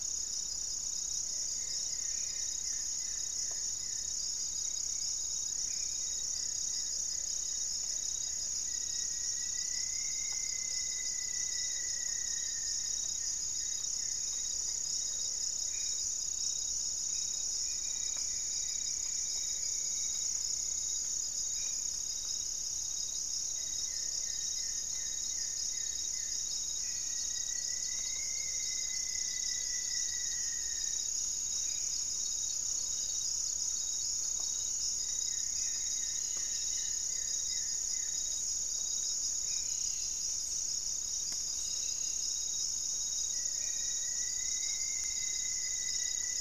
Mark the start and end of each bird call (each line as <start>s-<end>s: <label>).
0.0s-6.1s: Black-faced Antthrush (Formicarius analis)
0.0s-26.5s: Goeldi's Antbird (Akletos goeldii)
0.0s-46.4s: Gray-fronted Dove (Leptotila rufaxilla)
1.2s-2.5s: Plumbeous Pigeon (Patagioenas plumbea)
3.8s-5.3s: Little Woodpecker (Dryobates passerinus)
7.7s-8.6s: Plumbeous Pigeon (Patagioenas plumbea)
8.4s-12.9s: Rufous-fronted Antthrush (Formicarius rufifrons)
15.5s-21.9s: Black-faced Antthrush (Formicarius analis)
26.6s-44.1s: Black-faced Antthrush (Formicarius analis)
26.7s-31.1s: Rufous-fronted Antthrush (Formicarius rufifrons)
31.6s-35.6s: Thrush-like Wren (Campylorhynchus turdinus)
34.8s-38.4s: Goeldi's Antbird (Akletos goeldii)
35.7s-46.4s: Cobalt-winged Parakeet (Brotogeris cyanoptera)
43.1s-46.4s: Rufous-fronted Antthrush (Formicarius rufifrons)